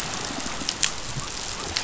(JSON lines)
{"label": "biophony", "recorder": "SoundTrap 500"}